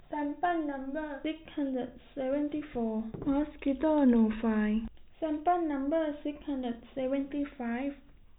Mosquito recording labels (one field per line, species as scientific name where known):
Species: no mosquito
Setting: cup